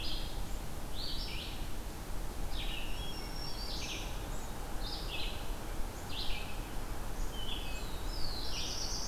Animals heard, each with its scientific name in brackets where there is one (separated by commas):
Black-throated Green Warbler (Setophaga virens), Black-throated Blue Warbler (Setophaga caerulescens), Red-eyed Vireo (Vireo olivaceus), Hermit Thrush (Catharus guttatus)